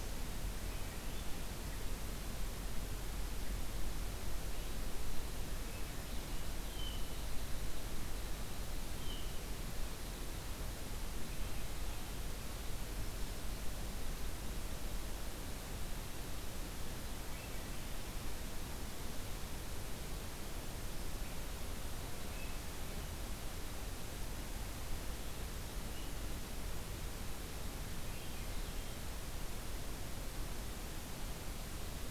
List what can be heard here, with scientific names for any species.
Catharus ustulatus, Catharus guttatus